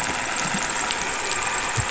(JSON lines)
{"label": "anthrophony, boat engine", "recorder": "SoundTrap 500"}